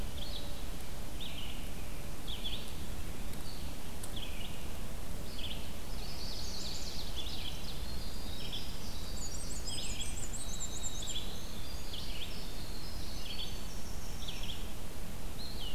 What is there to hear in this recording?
Red-eyed Vireo, Chestnut-sided Warbler, Winter Wren, Black-and-white Warbler, Eastern Wood-Pewee